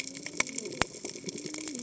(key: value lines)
label: biophony, cascading saw
recorder: HydroMoth